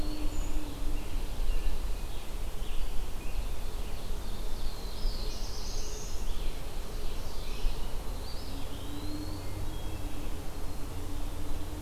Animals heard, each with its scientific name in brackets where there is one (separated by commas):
Black-throated Blue Warbler (Setophaga caerulescens), Eastern Wood-Pewee (Contopus virens), Ovenbird (Seiurus aurocapilla), Scarlet Tanager (Piranga olivacea), Brown Creeper (Certhia americana), Hermit Thrush (Catharus guttatus)